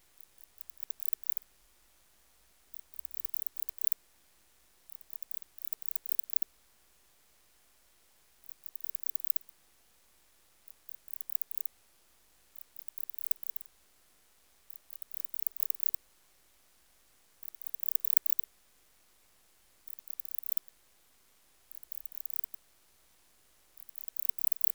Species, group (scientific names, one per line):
Barbitistes yersini
Orthoptera